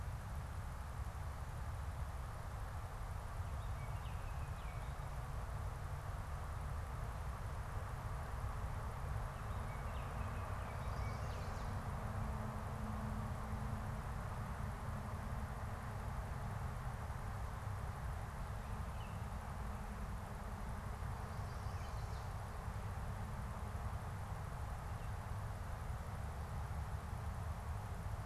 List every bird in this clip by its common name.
Baltimore Oriole, Chestnut-sided Warbler